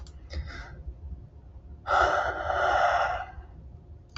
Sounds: Sigh